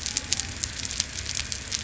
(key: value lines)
label: biophony
recorder: SoundTrap 300